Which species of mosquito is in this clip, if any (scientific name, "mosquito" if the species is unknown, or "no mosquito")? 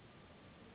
Anopheles gambiae s.s.